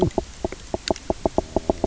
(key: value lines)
label: biophony, knock croak
recorder: SoundTrap 300